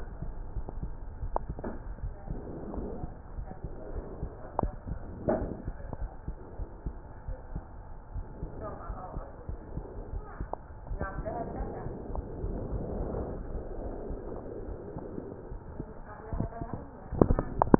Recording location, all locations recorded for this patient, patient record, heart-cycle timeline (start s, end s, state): aortic valve (AV)
aortic valve (AV)+pulmonary valve (PV)+tricuspid valve (TV)+mitral valve (MV)
#Age: Child
#Sex: Female
#Height: 115.0 cm
#Weight: 26.8 kg
#Pregnancy status: False
#Murmur: Absent
#Murmur locations: nan
#Most audible location: nan
#Systolic murmur timing: nan
#Systolic murmur shape: nan
#Systolic murmur grading: nan
#Systolic murmur pitch: nan
#Systolic murmur quality: nan
#Diastolic murmur timing: nan
#Diastolic murmur shape: nan
#Diastolic murmur grading: nan
#Diastolic murmur pitch: nan
#Diastolic murmur quality: nan
#Outcome: Normal
#Campaign: 2015 screening campaign
0.00	0.20	systole
0.20	0.34	S2
0.34	0.54	diastole
0.54	0.68	S1
0.68	0.82	systole
0.82	0.98	S2
0.98	1.22	diastole
1.22	1.37	S1
1.37	1.47	systole
1.47	1.57	S2
1.57	2.00	diastole
2.00	2.14	S1
2.14	2.30	systole
2.30	2.46	S2
2.46	2.68	diastole
2.68	2.84	S1
2.84	3.00	systole
3.00	3.10	S2
3.10	3.34	diastole
3.34	3.48	S1
3.48	3.64	systole
3.64	3.74	S2
3.74	3.94	diastole
3.94	4.04	S1
4.04	4.20	systole
4.20	4.30	S2
4.30	4.58	diastole
4.58	4.72	S1
4.72	4.88	systole
4.88	5.02	S2
5.02	5.26	diastole
5.26	5.44	S1
5.44	5.66	systole
5.66	5.78	S2
5.78	6.00	diastole
6.00	6.10	S1
6.10	6.24	systole
6.24	6.36	S2
6.36	6.60	diastole
6.60	6.70	S1
6.70	6.84	systole
6.84	7.00	S2
7.00	7.26	diastole
7.26	7.36	S1
7.36	7.52	systole
7.52	7.64	S2
7.64	8.10	diastole
8.10	8.24	S1
8.24	8.40	systole
8.40	8.50	S2
8.50	8.88	diastole
8.88	8.98	S1
8.98	9.14	systole
9.14	9.24	S2
9.24	9.47	diastole
9.47	9.60	S1
9.60	9.74	systole
9.74	9.86	S2
9.86	10.10	diastole
10.10	10.24	S1
10.24	10.38	systole
10.38	10.50	S2
10.50	10.88	diastole
10.88	11.02	S1
11.02	11.14	systole
11.14	11.28	S2
11.28	11.54	diastole
11.54	11.70	S1
11.70	11.82	systole
11.82	11.94	S2
11.94	12.14	diastole
12.14	12.30	S1
12.30	12.42	systole
12.42	12.52	S2
12.52	12.70	diastole
12.70	12.86	S1
12.86	12.94	systole
12.94	13.10	S2
13.10	13.30	diastole